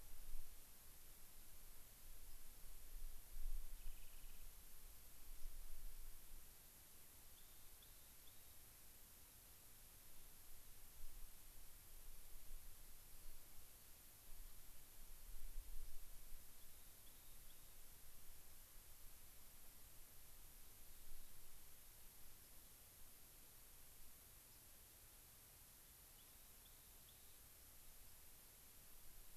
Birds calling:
Rock Wren (Salpinctes obsoletus), White-crowned Sparrow (Zonotrichia leucophrys)

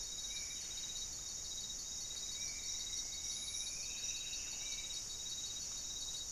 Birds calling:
Striped Woodcreeper (Xiphorhynchus obsoletus), Spot-winged Antshrike (Pygiptila stellaris), Buff-breasted Wren (Cantorchilus leucotis)

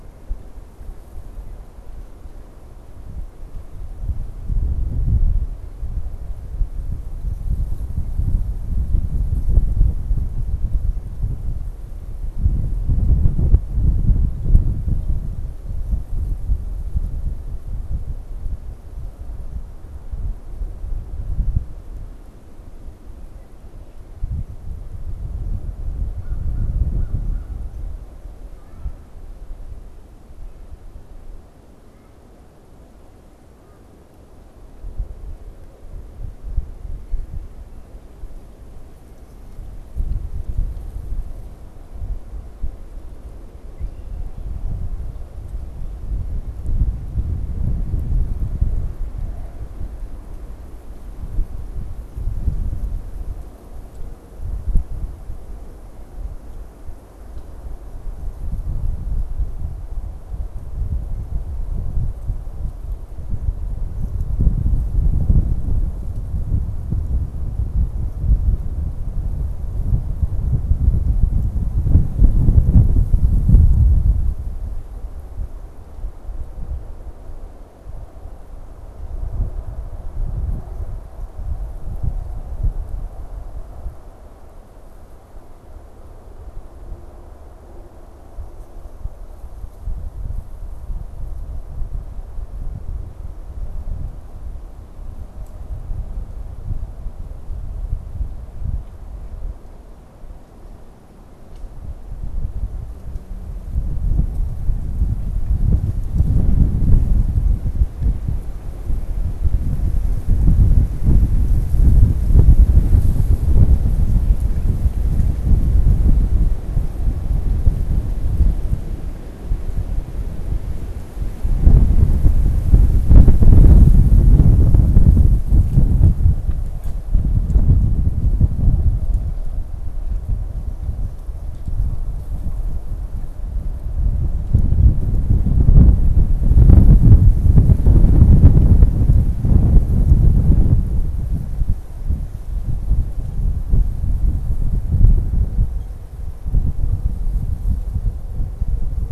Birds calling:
Red-winged Blackbird (Agelaius phoeniceus), American Crow (Corvus brachyrhynchos)

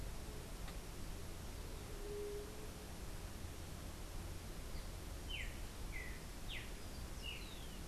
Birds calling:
Streaked Saltator (Saltator striatipectus), White-tipped Dove (Leptotila verreauxi)

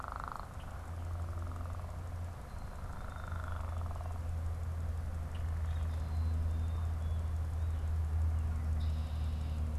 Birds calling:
Black-capped Chickadee (Poecile atricapillus), Red-winged Blackbird (Agelaius phoeniceus)

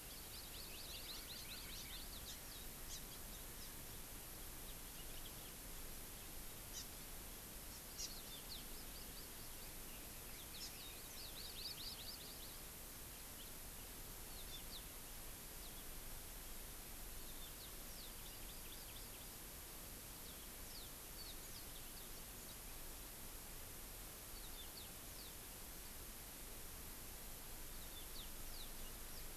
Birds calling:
Yellow-fronted Canary (Crithagra mozambica), Hawaii Amakihi (Chlorodrepanis virens)

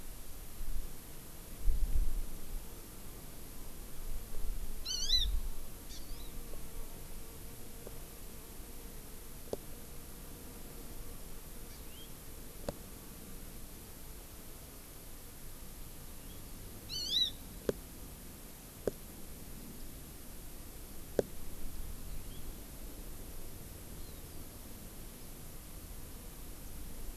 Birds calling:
Hawaii Amakihi (Chlorodrepanis virens), House Finch (Haemorhous mexicanus)

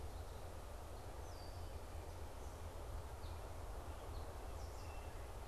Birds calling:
Wood Thrush (Hylocichla mustelina), Red-winged Blackbird (Agelaius phoeniceus)

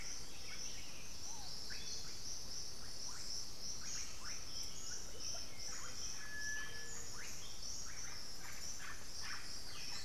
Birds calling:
Buff-throated Saltator (Saltator maximus), Russet-backed Oropendola (Psarocolius angustifrons), Undulated Tinamou (Crypturellus undulatus), Bluish-fronted Jacamar (Galbula cyanescens), unidentified bird

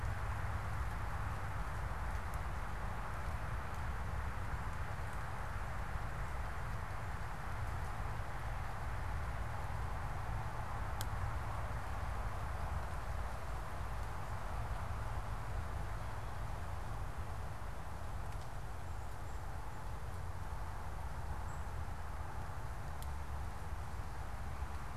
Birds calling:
unidentified bird

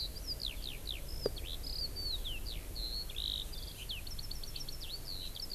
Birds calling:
Eurasian Skylark (Alauda arvensis)

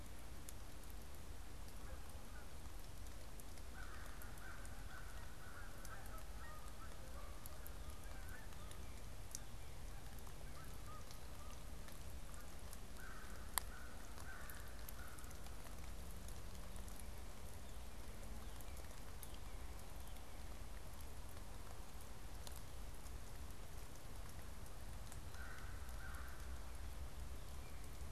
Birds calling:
American Crow (Corvus brachyrhynchos), Canada Goose (Branta canadensis)

